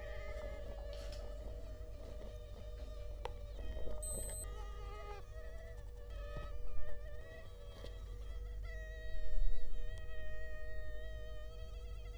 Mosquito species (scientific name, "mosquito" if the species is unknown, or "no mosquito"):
Culex quinquefasciatus